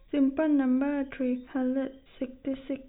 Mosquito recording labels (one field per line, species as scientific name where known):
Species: no mosquito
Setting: cup